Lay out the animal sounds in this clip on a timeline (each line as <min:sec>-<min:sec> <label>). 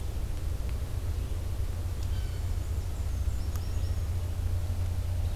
0:00.0-0:05.4 Red-eyed Vireo (Vireo olivaceus)
0:02.0-0:04.1 Black-and-white Warbler (Mniotilta varia)
0:02.0-0:02.5 Blue Jay (Cyanocitta cristata)